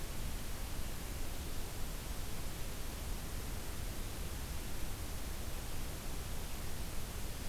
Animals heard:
forest ambience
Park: Marsh-Billings-Rockefeller National Historical Park